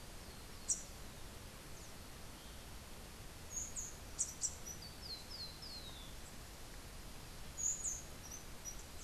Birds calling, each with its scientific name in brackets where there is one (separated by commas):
Rufous-tailed Hummingbird (Amazilia tzacatl), Rufous-capped Warbler (Basileuterus rufifrons), Rufous-collared Sparrow (Zonotrichia capensis)